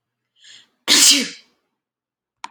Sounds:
Sneeze